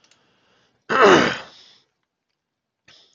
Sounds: Throat clearing